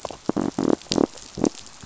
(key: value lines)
label: biophony
recorder: SoundTrap 500